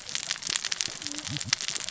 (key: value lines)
label: biophony, cascading saw
recorder: SoundTrap 600 or HydroMoth